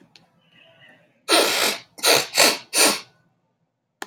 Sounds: Sniff